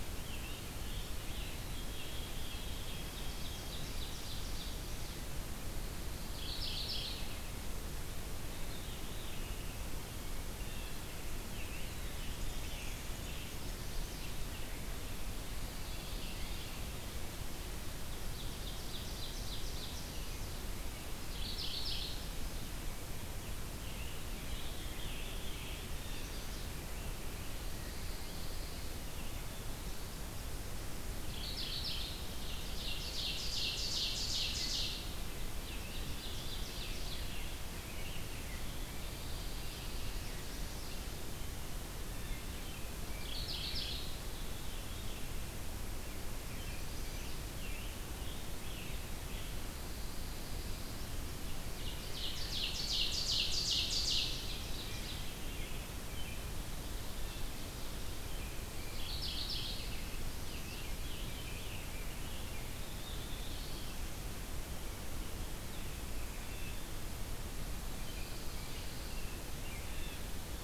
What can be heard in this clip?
Scarlet Tanager, White-throated Sparrow, Ovenbird, Mourning Warbler, Veery, Blue Jay, Chestnut-sided Warbler, Pine Warbler, American Robin, Black-throated Blue Warbler